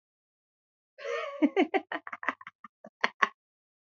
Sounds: Laughter